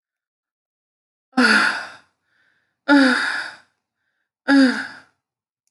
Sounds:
Sigh